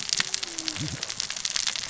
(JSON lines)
{"label": "biophony, cascading saw", "recorder": "SoundTrap 600 or HydroMoth"}